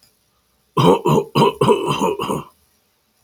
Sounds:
Cough